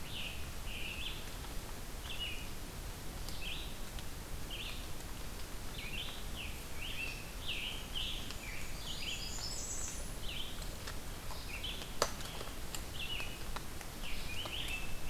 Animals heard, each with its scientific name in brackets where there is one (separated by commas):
Blackburnian Warbler (Setophaga fusca), Red-eyed Vireo (Vireo olivaceus), Scarlet Tanager (Piranga olivacea)